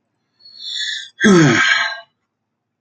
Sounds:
Sigh